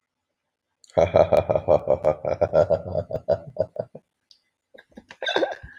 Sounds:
Laughter